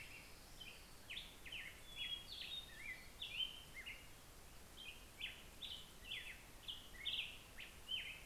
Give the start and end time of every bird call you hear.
[0.00, 1.79] Orange-crowned Warbler (Leiothlypis celata)
[0.00, 8.26] Black-headed Grosbeak (Pheucticus melanocephalus)
[7.59, 8.26] Hermit Thrush (Catharus guttatus)

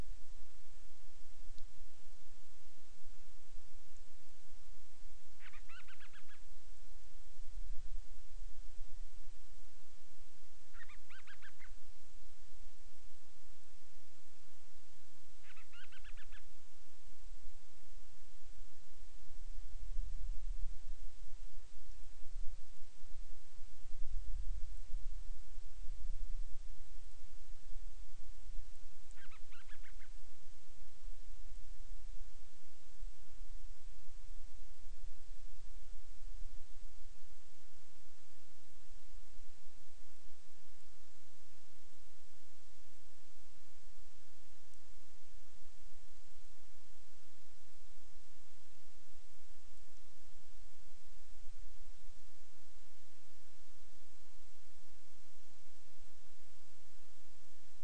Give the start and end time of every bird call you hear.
[5.30, 6.50] Band-rumped Storm-Petrel (Hydrobates castro)
[10.70, 11.80] Band-rumped Storm-Petrel (Hydrobates castro)
[15.30, 16.60] Band-rumped Storm-Petrel (Hydrobates castro)
[29.10, 30.20] Band-rumped Storm-Petrel (Hydrobates castro)

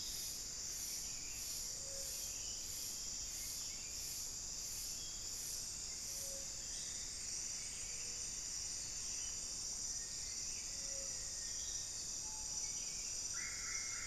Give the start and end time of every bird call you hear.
[0.00, 14.06] Buff-throated Saltator (Saltator maximus)
[6.51, 9.81] Plumbeous Antbird (Myrmelastes hyperythrus)
[9.81, 12.21] Black-faced Antthrush (Formicarius analis)
[12.21, 12.71] Screaming Piha (Lipaugus vociferans)
[13.21, 14.06] Solitary Black Cacique (Cacicus solitarius)

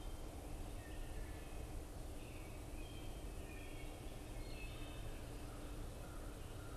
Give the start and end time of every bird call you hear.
[0.00, 6.76] Wood Thrush (Hylocichla mustelina)

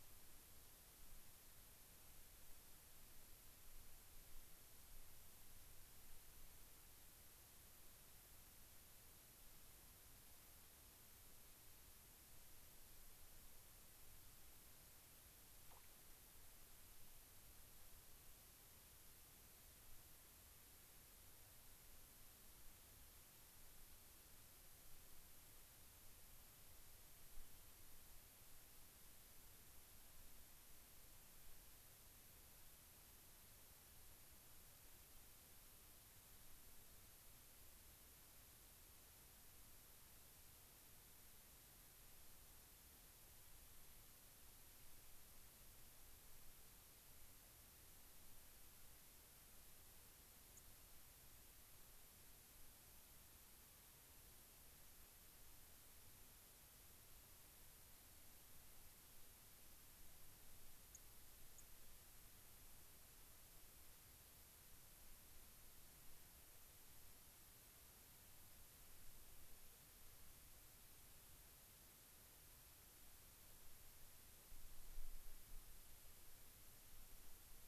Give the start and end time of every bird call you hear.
[50.49, 50.69] White-crowned Sparrow (Zonotrichia leucophrys)
[60.89, 60.99] White-crowned Sparrow (Zonotrichia leucophrys)
[61.59, 61.69] White-crowned Sparrow (Zonotrichia leucophrys)

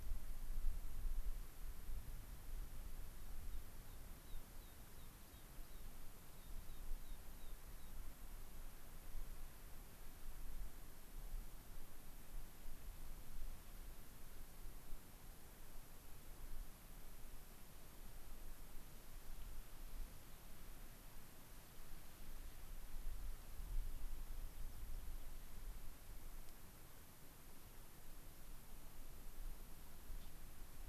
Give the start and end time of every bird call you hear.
[3.50, 8.01] American Pipit (Anthus rubescens)
[24.41, 25.41] American Pipit (Anthus rubescens)
[30.11, 30.41] Gray-crowned Rosy-Finch (Leucosticte tephrocotis)

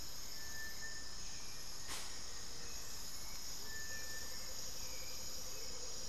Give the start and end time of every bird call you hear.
[0.00, 6.08] Hauxwell's Thrush (Turdus hauxwelli)
[0.88, 3.38] Plain-winged Antshrike (Thamnophilus schistaceus)
[3.48, 6.08] Amazonian Motmot (Momotus momota)

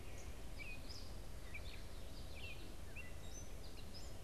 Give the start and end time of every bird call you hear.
[0.00, 4.23] American Goldfinch (Spinus tristis)
[0.00, 4.23] Gray Catbird (Dumetella carolinensis)

